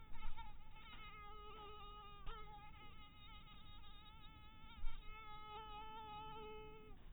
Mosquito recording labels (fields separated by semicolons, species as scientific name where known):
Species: mosquito; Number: one; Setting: cup